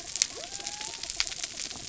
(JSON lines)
{"label": "anthrophony, mechanical", "recorder": "SoundTrap 300"}
{"label": "biophony", "recorder": "SoundTrap 300"}